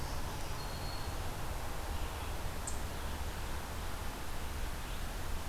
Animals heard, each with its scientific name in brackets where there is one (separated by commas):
Black-throated Green Warbler (Setophaga virens), Eastern Chipmunk (Tamias striatus)